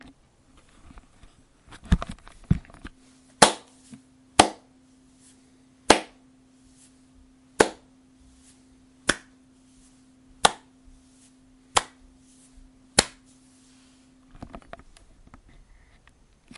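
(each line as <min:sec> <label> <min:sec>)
0:00.2 Sounds of a microphone being touched and moved. 0:03.0
0:03.3 A low-frequency clap. 0:03.6
0:04.3 A low-frequency clap. 0:04.6
0:05.7 A low-frequency clap sound. 0:06.2
0:07.5 A low-frequency clap sound. 0:07.8
0:09.0 A high-pitched clap. 0:09.2
0:10.3 A clap. 0:10.6
0:11.6 A clap. 0:12.1
0:12.8 A clap. 0:13.2
0:14.3 A microphone is being touched. 0:15.6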